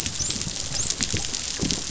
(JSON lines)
{"label": "biophony, dolphin", "recorder": "SoundTrap 500"}